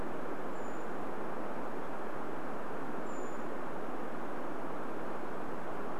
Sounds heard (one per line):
Brown Creeper call